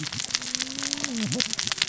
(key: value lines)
label: biophony, cascading saw
recorder: SoundTrap 600 or HydroMoth